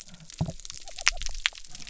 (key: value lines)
label: biophony
recorder: SoundTrap 300